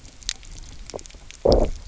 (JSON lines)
{"label": "biophony, low growl", "recorder": "SoundTrap 300"}